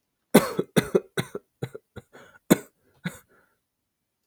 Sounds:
Cough